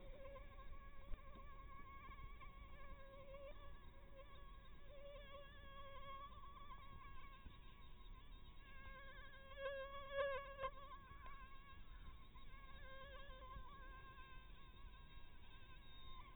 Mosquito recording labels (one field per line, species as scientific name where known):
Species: Anopheles maculatus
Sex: female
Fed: blood-fed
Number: one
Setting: cup